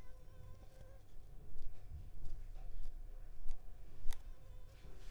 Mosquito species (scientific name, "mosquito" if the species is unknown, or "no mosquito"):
Anopheles arabiensis